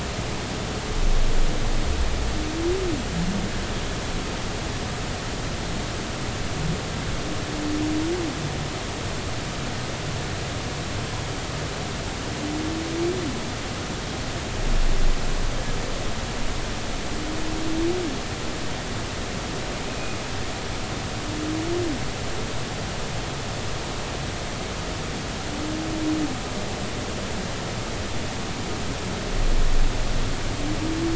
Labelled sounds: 19.8	20.2	humpback whale, 2.4 to 2.6 kHz

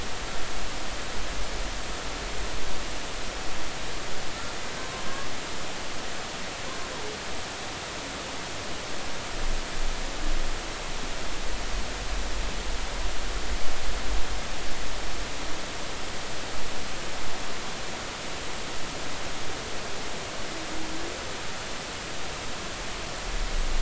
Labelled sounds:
4.8	5.1	humpback whale, 0.99 to 1.1 kHz

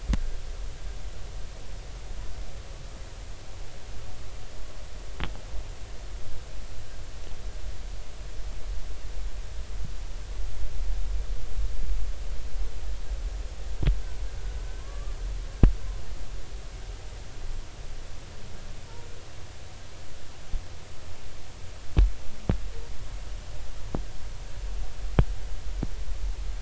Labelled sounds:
14.8	15.1	humpback whale, 1.0 to 1.2 kHz

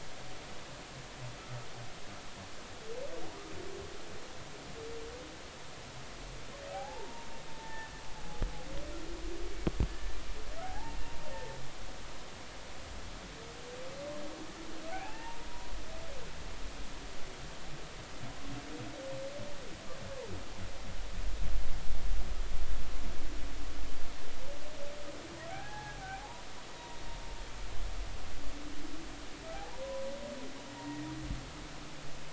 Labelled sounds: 6.7	7.9	humpback whale, 0.80 to 1.9 kHz
9.9	11.0	humpback whale, 0.80 to 1.8 kHz
14.9	15.5	humpback whale, 0.80 to 2.8 kHz
25.5	26.5	humpback whale, 0.80 to 1.7 kHz
29.7	30.1	humpback whale, 0.90 to 1.1 kHz
30.7	31.1	humpback whale, 1.8 to 1.9 kHz

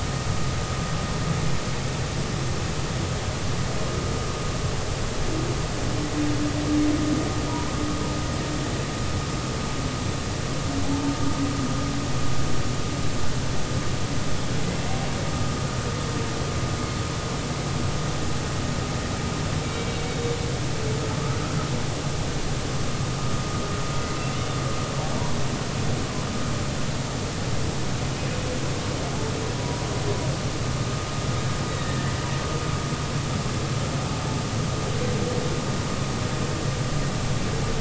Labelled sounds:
29.6	29.8	humpback whale, 0.93 to 1.1 kHz
31.8	32.1	humpback whale, 1.7 to 2.0 kHz

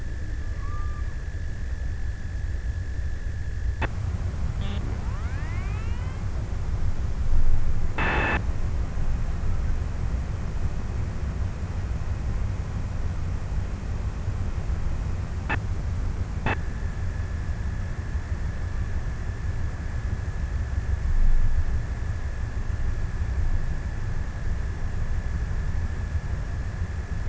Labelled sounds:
0.0	2.3	killer whale, offshore, 0.58 to 1.6 kHz

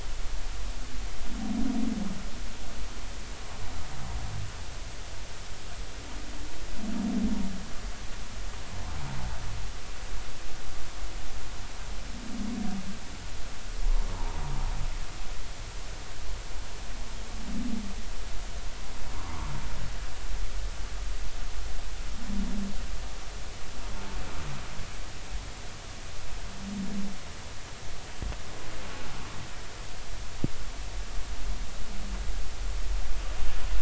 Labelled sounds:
14.1	14.4	humpback whale, 0.80 to 1.0 kHz

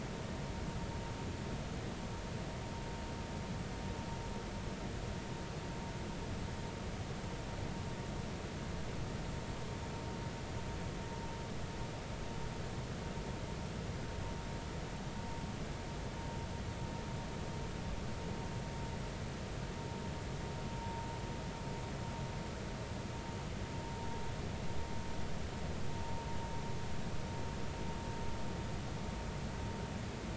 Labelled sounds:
20.8	21.0	vessel noise, 0.86 to 0.96 kHz

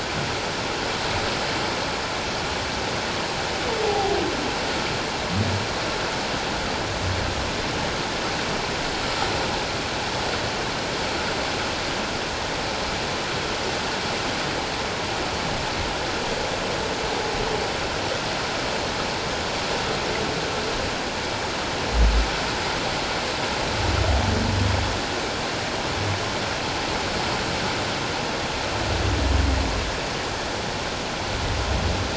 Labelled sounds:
3.8	4.1	humpback whale, 0.78 to 0.88 kHz

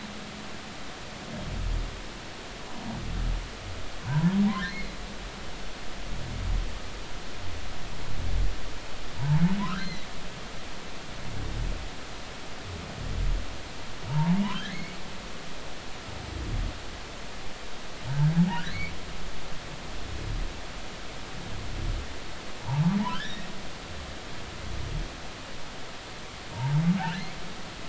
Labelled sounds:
4.0	4.4	humpback whale, 0.86 to 1.1 kHz
4.6	4.9	humpback whale, 4.0 to 4.4 kHz
9.2	9.4	humpback whale, 0.83 to 0.99 kHz
9.8	10.1	humpback whale, 2.0 to 4.3 kHz
14.1	15.0	humpback whale, 0.80 to 2.3 kHz
22.6	23.5	humpback whale, 0.80 to 3.2 kHz
26.5	27.2	humpback whale, 0.83 to 1.8 kHz

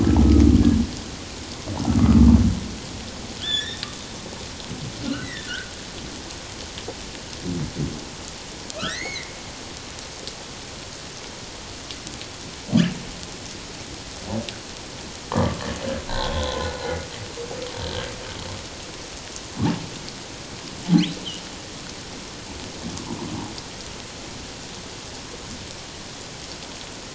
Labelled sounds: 1.8	2.2	humpback whale, 1.1 to 1.4 kHz
3.4	3.8	humpback whale, 1.7 to 3.8 kHz
5.2	5.7	humpback whale, 1.4 to 2.1 kHz
8.8	9.4	humpback whale, 1.2 to 6.7 kHz
15.3	15.6	humpback whale, 0.84 to 1.2 kHz
16.1	16.7	humpback whale, 0.97 to 3.6 kHz
17.8	18.1	humpback whale, 1.5 to 1.7 kHz

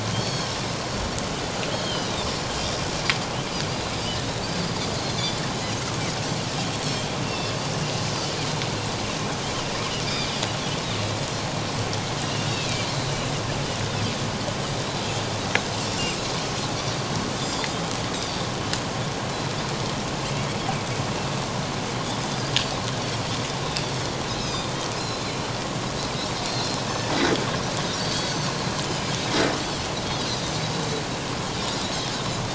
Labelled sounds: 0.1	0.5	Pacific white-sided dolphin, 3.1 to 6.7 kHz
1.7	2.3	Pacific white-sided dolphin, 2.8 to 4.4 kHz
5.0	5.3	Pacific white-sided dolphin, 4.0 to 4.5 kHz
7.2	8.3	Pacific white-sided dolphin, 2.6 to 6.2 kHz
10.0	10.3	Pacific white-sided dolphin, 2.2 to 2.5 kHz
12.2	12.9	Pacific white-sided dolphin, 2.3 to 3.0 kHz
15.8	16.2	Pacific white-sided dolphin, 4.8 to 7.6 kHz
16.7	17.7	Pacific white-sided dolphin, 4.4 to 7.5 kHz
22.3	22.5	Pacific white-sided dolphin, 4.7 to 5.1 kHz
24.3	25.5	Pacific white-sided dolphin, 3.5 to 5.3 kHz
26.4	26.8	Pacific white-sided dolphin, 4.1 to 4.3 kHz
28.0	28.5	Pacific white-sided dolphin, 4.3 to 4.7 kHz
31.8	32.1	Pacific white-sided dolphin, 5.2 to 5.6 kHz

